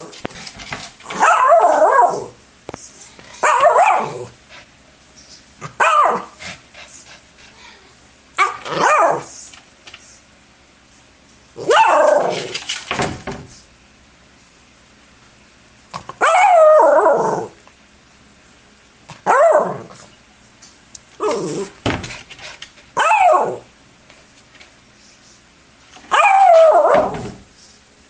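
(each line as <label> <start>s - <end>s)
A small dog barks. 1.0s - 2.4s
A small dog barks. 3.4s - 4.4s
A small dog barks. 5.7s - 6.3s
A dog is panting. 6.4s - 7.8s
A small dog barks. 8.3s - 9.4s
A small dog barks. 11.5s - 12.6s
A dog scratches at a door. 12.5s - 13.5s
A small dog barks. 16.2s - 17.5s
A small dog barks. 19.2s - 20.0s
A small dog is growling. 21.2s - 21.7s
A dog is panting. 22.0s - 22.7s
A small dog barks. 22.9s - 23.7s
A small dog barks. 26.1s - 27.4s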